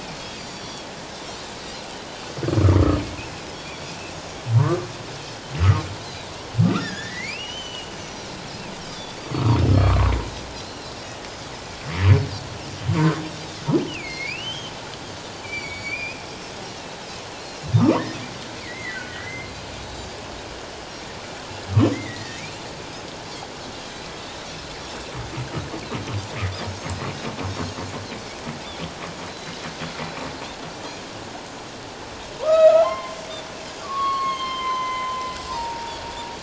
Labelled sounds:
0.1	0.9	Pacific white-sided dolphin, 3.2 to 7.2 kHz
3.2	3.9	Pacific white-sided dolphin, 2.4 to 5.7 kHz
4.6	5.9	humpback whale, 0.91 to 1.4 kHz
6.0	6.3	Pacific white-sided dolphin, 3.6 to 4.2 kHz
6.6	7.9	humpback whale, 1.1 to 3.1 kHz
6.9	8.3	Pacific white-sided dolphin, 3.2 to 6.2 kHz
9.0	9.3	humpback whale, 4.5 to 4.9 kHz
9.2	10.9	Pacific white-sided dolphin, 0.91 to 4.2 kHz
9.6	9.8	humpback whale, 5.1 to 5.4 kHz
13.9	14.7	humpback whale, 1.9 to 3.4 kHz
14.0	14.3	Pacific white-sided dolphin, 4.1 to 4.6 kHz
15.4	16.2	humpback whale, 2.1 to 7.0 kHz
16.6	17.0	Pacific white-sided dolphin, 3.8 to 4.1 kHz
17.8	18.1	humpback whale, 0.91 to 1.3 kHz
18.6	19.5	humpback whale, 1.4 to 2.4 kHz
19.8	20.1	Pacific white-sided dolphin, 3.8 to 4.0 kHz
21.9	22.6	humpback whale, 1.8 to 2.6 kHz
29.3	29.5	Pacific white-sided dolphin, 3.9 to 4.1 kHz
32.4	33.2	humpback whale, 0.78 to 3.2 kHz
32.5	32.8	Pacific white-sided dolphin, 6.9 to 7.2 kHz
33.8	36.0	humpback whale, 0.88 to 6.5 kHz

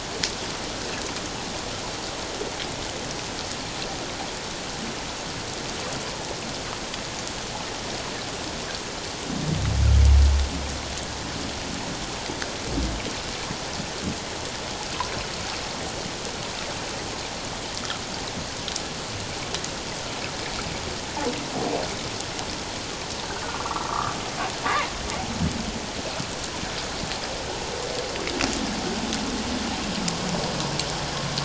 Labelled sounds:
23.4	24.1	humpback whale, 0.94 to 1.6 kHz
24.6	24.9	humpback whale, 0.91 to 1.2 kHz

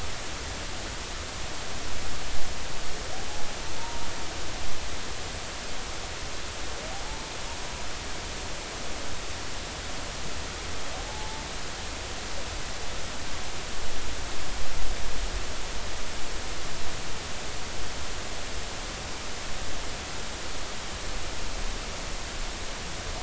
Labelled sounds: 7.1	7.3	humpback whale, 0.83 to 0.93 kHz
11.1	11.4	humpback whale, 0.80 to 0.93 kHz

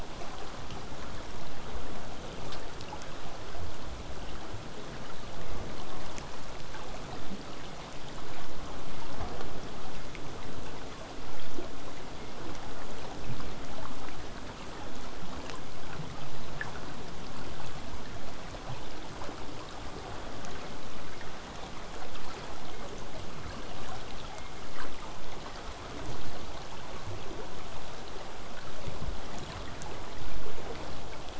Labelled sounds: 10.3	11.5	killer whale, southern resident, J pod, 5.6 to 8.0 kHz
18.2	23.2	vessel noise, 0 to 8.0 kHz

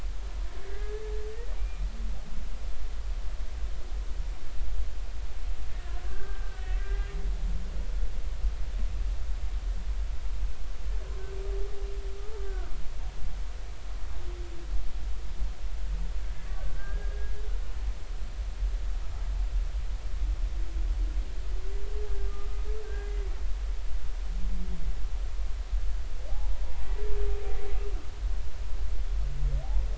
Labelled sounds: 0.6	1.0	humpback whale, 1.6 to 2.1 kHz
1.6	1.9	humpback whale, 2.3 to 2.5 kHz
6.0	7.1	humpback whale, 1.1 to 1.7 kHz
13.4	13.7	humpback whale, 1.3 to 1.7 kHz
16.5	17.4	humpback whale, 1.5 to 1.7 kHz
22.2	23.3	humpback whale, 1.2 to 2.1 kHz
26.3	26.6	humpback whale, 0.80 to 0.99 kHz

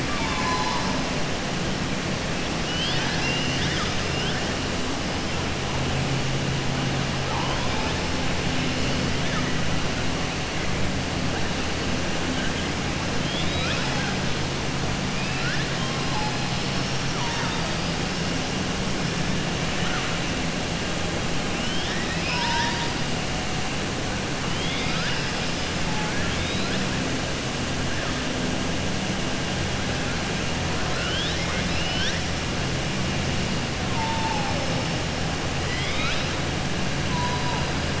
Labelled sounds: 0.0	0.9	killer whale, southern resident, 0.83 to 5.8 kHz
2.6	4.0	killer whale, southern resident, 1.3 to 6.0 kHz
13.2	14.1	killer whale, southern resident, 0.72 to 5.6 kHz
15.1	15.6	killer whale, southern resident, 1.4 to 2.8 kHz
21.5	22.9	killer whale, southern resident, 0.94 to 5.9 kHz

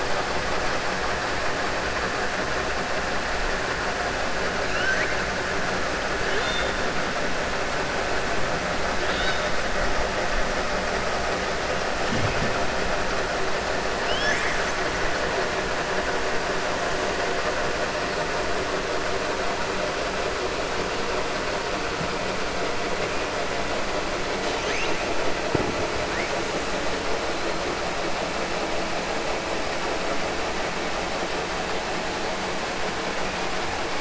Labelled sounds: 4.6	5.1	killer whale, 1.4 to 3.1 kHz
6.2	6.7	killer whale, 1.4 to 4.4 kHz
9.0	9.5	killer whale, 1.5 to 6.1 kHz
14.0	14.6	killer whale, 1.7 to 7.8 kHz

